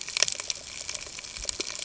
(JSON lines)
{"label": "ambient", "recorder": "HydroMoth"}